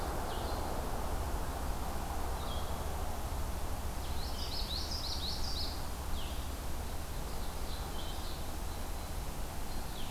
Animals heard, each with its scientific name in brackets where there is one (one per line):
Common Yellowthroat (Geothlypis trichas)
Red-eyed Vireo (Vireo olivaceus)